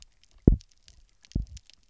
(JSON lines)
{"label": "biophony, double pulse", "recorder": "SoundTrap 300"}